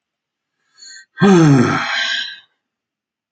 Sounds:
Sigh